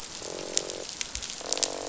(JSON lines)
{"label": "biophony, croak", "recorder": "SoundTrap 500"}